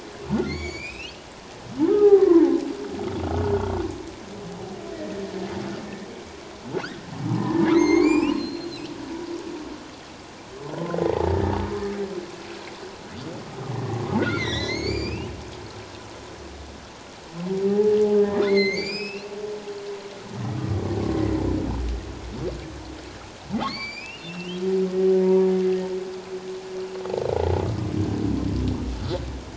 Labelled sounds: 0.4	2.5	humpback whale, 0.78 to 7.5 kHz
3.2	3.5	humpback whale, 1.4 to 1.5 kHz
7.3	8.7	humpback whale, 0.78 to 7.5 kHz
10.7	11.0	humpback whale, 0.91 to 1.1 kHz
11.3	11.6	humpback whale, 1.7 to 1.8 kHz
13.7	14.0	humpback whale, 1.8 to 2.0 kHz
14.3	15.3	humpback whale, 1.7 to 7.2 kHz
17.7	17.9	humpback whale, 0.78 to 0.91 kHz
18.4	19.3	humpback whale, 1.9 to 7.7 kHz
20.6	20.8	humpback whale, 1.1 to 1.2 kHz
23.6	24.6	humpback whale, 2.0 to 7.3 kHz
25.2	25.5	humpback whale, 0.88 to 1.0 kHz

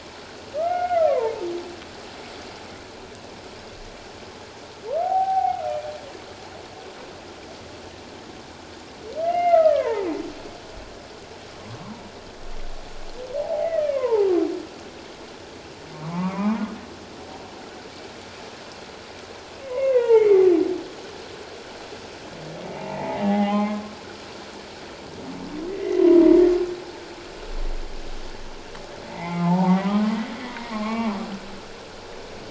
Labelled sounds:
1.1	1.3	humpback whale, 0.84 to 1.2 kHz
5.0	5.9	humpback whale, 0.78 to 2.7 kHz
9.2	10.1	humpback whale, 0.78 to 2.9 kHz
13.4	14.4	humpback whale, 0.78 to 2.4 kHz
15.9	16.6	humpback whale, 0.81 to 2.5 kHz
19.6	20.5	humpback whale, 0.81 to 2.3 kHz
22.8	23.8	humpback whale, 0.78 to 3.2 kHz
25.7	26.3	humpback whale, 0.91 to 2.1 kHz
29.1	30.1	humpback whale, 0.78 to 2.5 kHz
30.7	31.1	humpback whale, 1.0 to 2.6 kHz

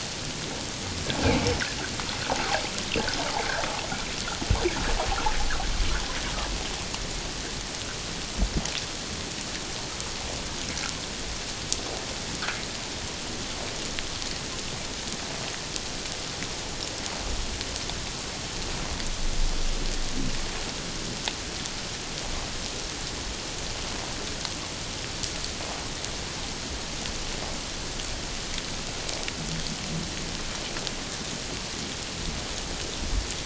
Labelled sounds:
1.2	1.5	water noise, 2.0 to 2.5 kHz

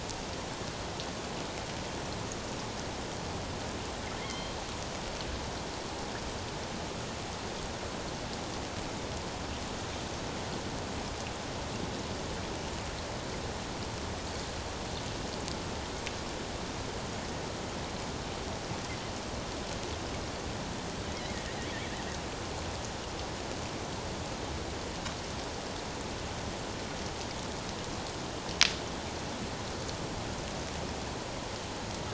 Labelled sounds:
4.2	4.6	killer whale, 2.0 to 4.3 kHz

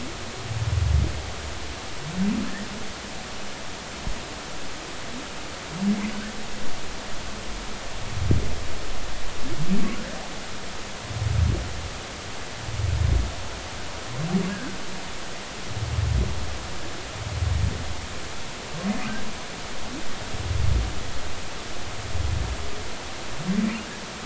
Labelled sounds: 14.5	14.8	humpback whale, 1.5 to 1.8 kHz

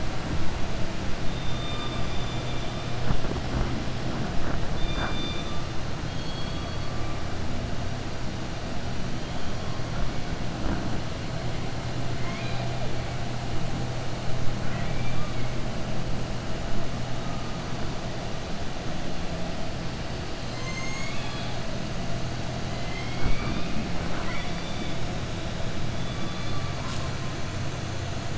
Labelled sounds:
12.1	12.7	killer whale, southern resident, 1.0 to 4.9 kHz
14.6	15.5	killer whale, southern resident, 1.1 to 3.3 kHz
20.4	21.5	killer whale, southern resident, 1.1 to 7.7 kHz
24.0	24.9	killer whale, southern resident, 0.72 to 4.4 kHz

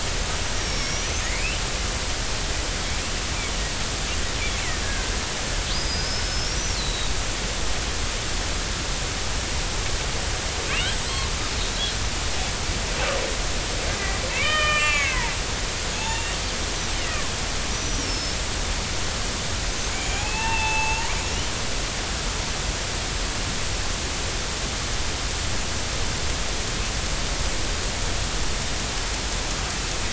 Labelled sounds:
0.6	1.6	killer whale, northern resident, G clan, 1.7 to 6.4 kHz
4.8	5.1	killer whale, northern resident, G clan, 1.5 to 1.7 kHz
5.7	7.1	killer whale, northern resident, G clan, 3.7 to 5.3 kHz
10.7	11.1	killer whale, northern resident, G clan, 2.1 to 7.8 kHz
14.3	16.4	killer whale, northern resident, G clan, 0.83 to 5.0 kHz
17.1	17.3	killer whale, northern resident, G clan, 0.96 to 1.3 kHz
17.7	18.4	killer whale, northern resident, G clan, 5.1 to 6.0 kHz
20.0	21.1	killer whale, northern resident, G clan, 0.80 to 7.0 kHz

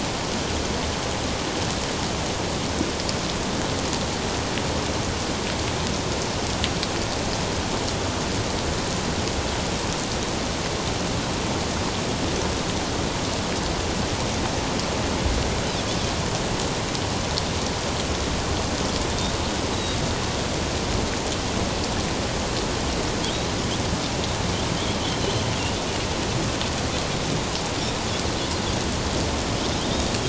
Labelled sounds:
19.7	20.0	Pacific white-sided dolphin, 3.7 to 4.0 kHz

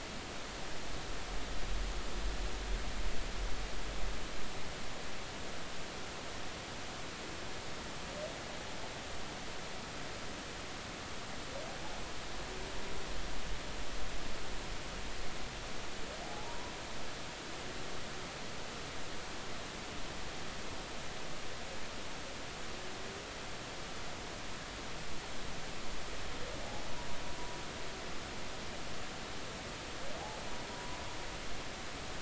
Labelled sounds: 16.2	16.7	humpback whale, 0.80 to 1.0 kHz
30.7	31.0	humpback whale, 0.93 to 1.1 kHz

